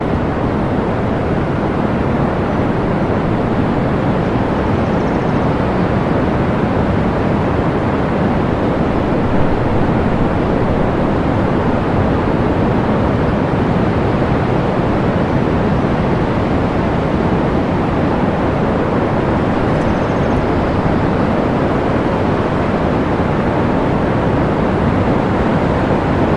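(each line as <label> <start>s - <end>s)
Gentle surf rolls onto the shore with the steady ebb and flow of ocean waves creating a calming and continuous natural rhythm. 0.0s - 26.4s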